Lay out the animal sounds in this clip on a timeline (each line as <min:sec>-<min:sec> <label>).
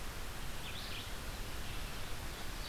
0:00.0-0:02.7 Red-eyed Vireo (Vireo olivaceus)